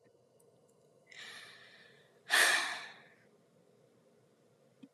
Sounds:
Sigh